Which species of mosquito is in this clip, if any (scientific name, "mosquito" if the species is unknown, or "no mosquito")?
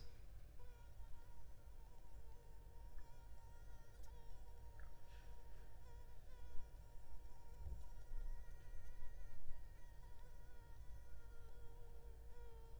Anopheles arabiensis